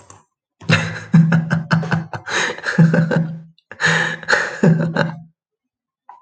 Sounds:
Laughter